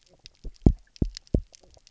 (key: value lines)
label: biophony, double pulse
recorder: SoundTrap 300

label: biophony, knock croak
recorder: SoundTrap 300